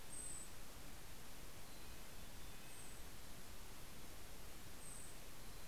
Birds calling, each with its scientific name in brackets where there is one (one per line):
Red-breasted Nuthatch (Sitta canadensis)
Mountain Chickadee (Poecile gambeli)
Golden-crowned Kinglet (Regulus satrapa)